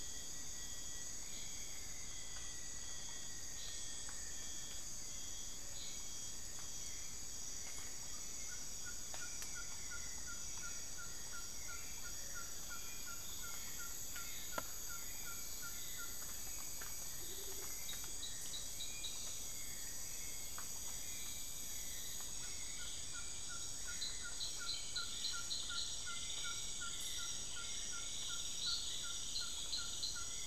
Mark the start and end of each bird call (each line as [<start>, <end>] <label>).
[0.00, 5.24] Rufous-fronted Antthrush (Formicarius rufifrons)
[0.00, 30.47] Black-billed Thrush (Turdus ignobilis)
[7.43, 30.47] Hauxwell's Thrush (Turdus hauxwelli)
[7.83, 30.47] Ferruginous Pygmy-Owl (Glaucidium brasilianum)
[17.04, 17.84] Amazonian Motmot (Momotus momota)